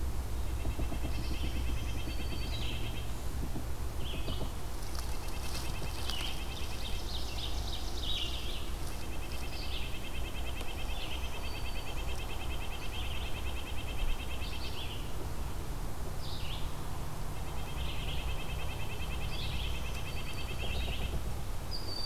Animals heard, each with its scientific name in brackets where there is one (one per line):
Broad-winged Hawk (Buteo platypterus)
Ovenbird (Seiurus aurocapilla)
Red-breasted Nuthatch (Sitta canadensis)
Yellow-bellied Sapsucker (Sphyrapicus varius)
Red-eyed Vireo (Vireo olivaceus)
Black-throated Green Warbler (Setophaga virens)